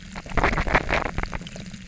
{"label": "biophony, knock croak", "recorder": "SoundTrap 300"}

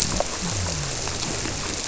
{"label": "biophony", "recorder": "SoundTrap 300"}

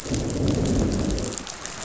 {"label": "biophony, growl", "recorder": "SoundTrap 500"}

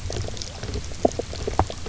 {"label": "biophony, knock croak", "recorder": "SoundTrap 300"}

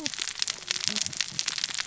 {"label": "biophony, cascading saw", "recorder": "SoundTrap 600 or HydroMoth"}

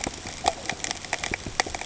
{"label": "ambient", "recorder": "HydroMoth"}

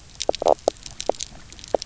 {"label": "biophony, knock croak", "recorder": "SoundTrap 300"}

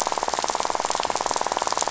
{"label": "biophony, rattle", "recorder": "SoundTrap 500"}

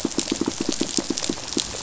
{"label": "biophony, pulse", "recorder": "SoundTrap 500"}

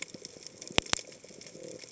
{"label": "biophony", "recorder": "HydroMoth"}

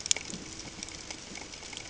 {"label": "ambient", "recorder": "HydroMoth"}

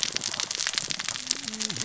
{"label": "biophony, cascading saw", "recorder": "SoundTrap 600 or HydroMoth"}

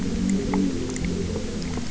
{"label": "anthrophony, boat engine", "recorder": "SoundTrap 300"}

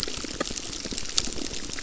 {"label": "biophony, crackle", "recorder": "SoundTrap 600"}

